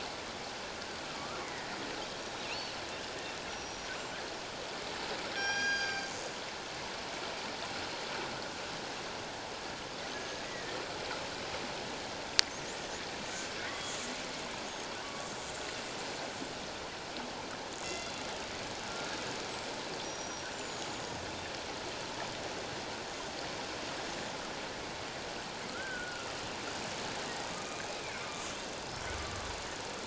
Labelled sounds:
1.2	1.7	killer whale, northern resident, G clan, 1.1 to 2.3 kHz
2.5	2.8	killer whale, northern resident, G clan, 4.0 to 4.5 kHz
3.5	3.9	killer whale, northern resident, G clan, 5.6 to 5.8 kHz
5.3	6.1	killer whale, northern resident, G clan, 1.5 to 8.0 kHz
10.1	10.8	killer whale, northern resident, G clan, 1.6 to 6.6 kHz
13.6	13.9	killer whale, northern resident, G clan, 1.1 to 3.4 kHz
15.0	15.3	killer whale, northern resident, G clan, 1.1 to 1.2 kHz
17.8	18.2	killer whale, northern resident, G clan, 2.0 to 4.8 kHz
19.2	21.2	killer whale, northern resident, G clan, 5.6 to 8.0 kHz
25.7	26.3	killer whale, northern resident, G clan, 1.2 to 1.6 kHz
27.8	28.3	killer whale, northern resident, G clan, 2.0 to 2.6 kHz

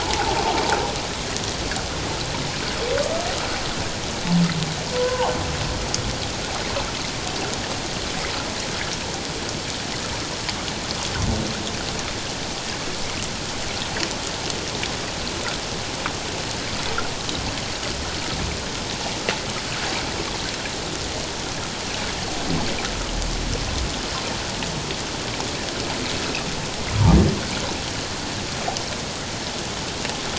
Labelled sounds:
4.9	5.3	humpback whale, 0.78 to 1.2 kHz

